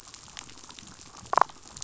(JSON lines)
{"label": "biophony, damselfish", "recorder": "SoundTrap 500"}